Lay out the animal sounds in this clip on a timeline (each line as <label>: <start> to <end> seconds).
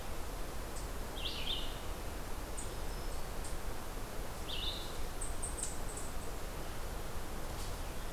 Red-eyed Vireo (Vireo olivaceus): 0.0 to 2.0 seconds
Eastern Chipmunk (Tamias striatus): 2.3 to 8.1 seconds
Red-eyed Vireo (Vireo olivaceus): 3.9 to 8.1 seconds